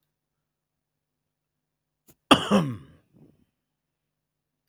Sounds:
Cough